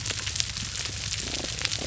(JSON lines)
{"label": "biophony, damselfish", "recorder": "SoundTrap 300"}